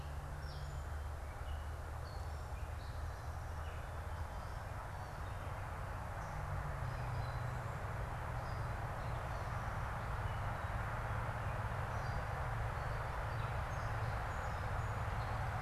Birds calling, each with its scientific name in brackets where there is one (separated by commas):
Song Sparrow (Melospiza melodia), Gray Catbird (Dumetella carolinensis)